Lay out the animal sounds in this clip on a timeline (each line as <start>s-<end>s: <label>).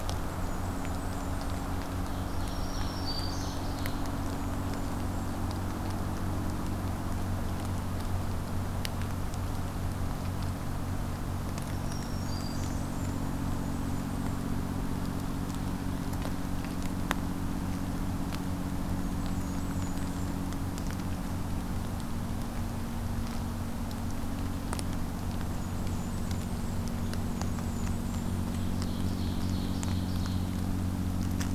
0.2s-1.8s: Blackburnian Warbler (Setophaga fusca)
2.1s-4.1s: Ovenbird (Seiurus aurocapilla)
2.3s-3.7s: Black-throated Green Warbler (Setophaga virens)
4.1s-5.4s: Blackburnian Warbler (Setophaga fusca)
11.8s-12.9s: Black-throated Green Warbler (Setophaga virens)
12.0s-14.4s: Blackburnian Warbler (Setophaga fusca)
19.0s-20.4s: Blackburnian Warbler (Setophaga fusca)
25.4s-28.5s: Blackburnian Warbler (Setophaga fusca)
28.7s-30.6s: Ovenbird (Seiurus aurocapilla)